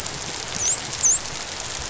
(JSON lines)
{"label": "biophony, dolphin", "recorder": "SoundTrap 500"}